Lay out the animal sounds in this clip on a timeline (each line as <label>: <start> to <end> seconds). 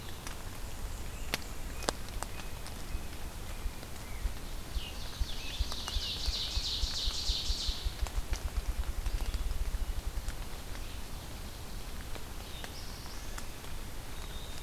Red-eyed Vireo (Vireo olivaceus): 0.0 to 14.6 seconds
Black-and-white Warbler (Mniotilta varia): 0.1 to 2.1 seconds
unidentified call: 1.0 to 4.3 seconds
Ovenbird (Seiurus aurocapilla): 4.6 to 8.1 seconds
Scarlet Tanager (Piranga olivacea): 4.6 to 6.8 seconds
Black-throated Blue Warbler (Setophaga caerulescens): 12.0 to 13.6 seconds